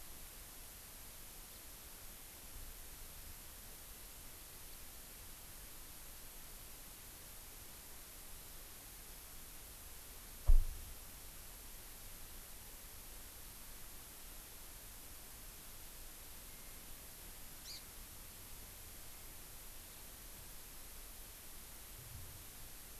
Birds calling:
Hawaii Amakihi (Chlorodrepanis virens)

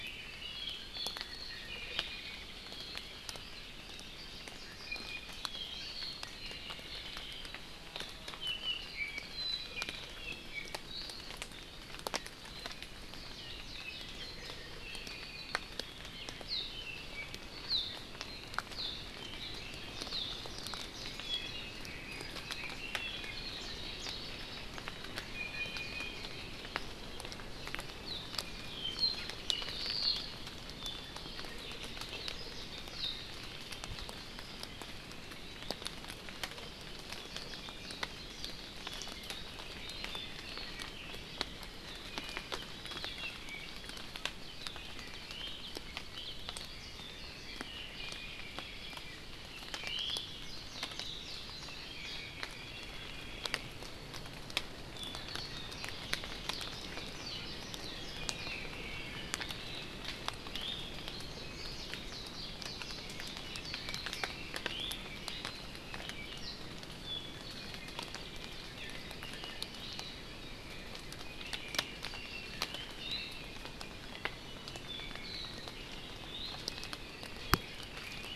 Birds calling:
Warbling White-eye (Zosterops japonicus), Iiwi (Drepanis coccinea), Red-billed Leiothrix (Leiothrix lutea), Apapane (Himatione sanguinea)

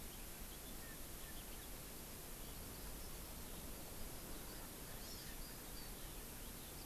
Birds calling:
House Finch (Haemorhous mexicanus), Erckel's Francolin (Pternistis erckelii), Eurasian Skylark (Alauda arvensis), Hawaii Amakihi (Chlorodrepanis virens)

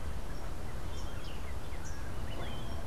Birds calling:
Melodious Blackbird (Dives dives)

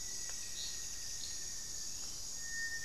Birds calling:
Gilded Barbet (Capito auratus), Rufous-fronted Antthrush (Formicarius rufifrons)

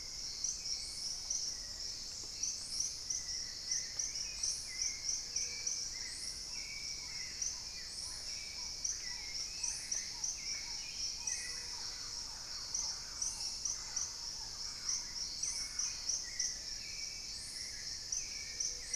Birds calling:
Black-tailed Trogon (Trogon melanurus), Buff-breasted Wren (Cantorchilus leucotis), Hauxwell's Thrush (Turdus hauxwelli), Paradise Tanager (Tangara chilensis), Gray-fronted Dove (Leptotila rufaxilla), Thrush-like Wren (Campylorhynchus turdinus), Dusky-throated Antshrike (Thamnomanes ardesiacus), Plumbeous Pigeon (Patagioenas plumbea)

